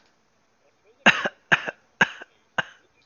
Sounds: Cough